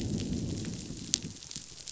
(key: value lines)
label: biophony, growl
recorder: SoundTrap 500